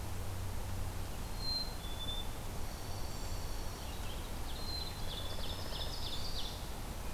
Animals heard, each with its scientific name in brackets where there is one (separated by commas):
Dark-eyed Junco (Junco hyemalis), Black-throated Green Warbler (Setophaga virens), Red-eyed Vireo (Vireo olivaceus), Black-capped Chickadee (Poecile atricapillus), Ovenbird (Seiurus aurocapilla)